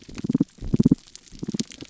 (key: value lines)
label: biophony
recorder: SoundTrap 300